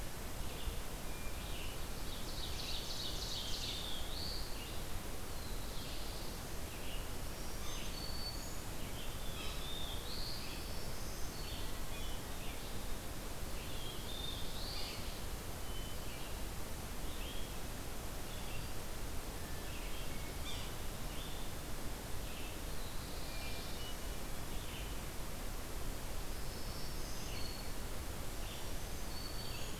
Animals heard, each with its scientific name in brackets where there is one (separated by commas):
Black-throated Green Warbler (Setophaga virens), Red-eyed Vireo (Vireo olivaceus), Black-throated Blue Warbler (Setophaga caerulescens), Hermit Thrush (Catharus guttatus), Ovenbird (Seiurus aurocapilla), Yellow-bellied Sapsucker (Sphyrapicus varius)